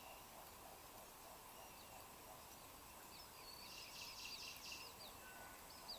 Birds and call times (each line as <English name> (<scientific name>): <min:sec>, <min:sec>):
Cinnamon Bracken-Warbler (Bradypterus cinnamomeus): 0:04.3